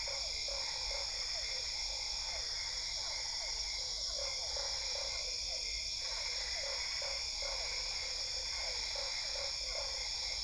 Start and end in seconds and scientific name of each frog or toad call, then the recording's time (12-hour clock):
0.0	1.1	Boana lundii
0.0	10.4	Boana albopunctata
0.0	10.4	Physalaemus cuvieri
4.1	5.2	Boana lundii
6.6	7.6	Boana lundii
8.9	10.4	Boana lundii
8:45pm